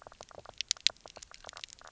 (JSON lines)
{"label": "biophony, knock croak", "recorder": "SoundTrap 300"}